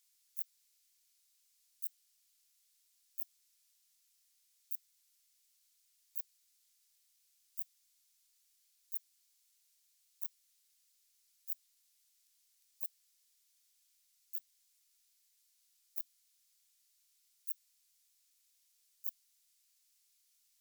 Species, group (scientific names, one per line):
Phaneroptera falcata
Orthoptera